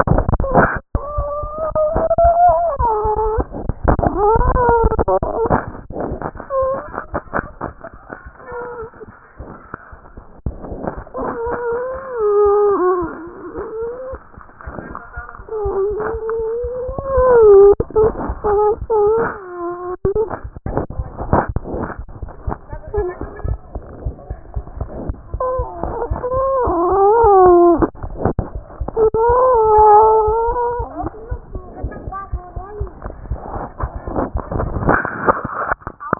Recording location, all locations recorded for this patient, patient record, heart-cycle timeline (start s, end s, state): aortic valve (AV)
aortic valve (AV)+mitral valve (MV)
#Age: Child
#Sex: Male
#Height: 101.0 cm
#Weight: 16.1 kg
#Pregnancy status: False
#Murmur: Absent
#Murmur locations: nan
#Most audible location: nan
#Systolic murmur timing: nan
#Systolic murmur shape: nan
#Systolic murmur grading: nan
#Systolic murmur pitch: nan
#Systolic murmur quality: nan
#Diastolic murmur timing: nan
#Diastolic murmur shape: nan
#Diastolic murmur grading: nan
#Diastolic murmur pitch: nan
#Diastolic murmur quality: nan
#Outcome: Normal
#Campaign: 2014 screening campaign
0.00	30.78	unannotated
30.78	30.88	S1
30.88	31.02	systole
31.02	31.10	S2
31.10	31.30	diastole
31.30	31.40	S1
31.40	31.54	systole
31.54	31.62	S2
31.62	31.82	diastole
31.82	31.92	S1
31.92	32.06	systole
32.06	32.14	S2
32.14	32.32	diastole
32.32	32.42	S1
32.42	32.54	systole
32.54	32.64	S2
32.64	32.80	diastole
32.80	32.90	S1
32.90	33.04	systole
33.04	33.14	S2
33.14	33.30	diastole
33.30	33.40	S1
33.40	33.54	systole
33.54	33.64	S2
33.64	33.82	diastole
33.82	36.19	unannotated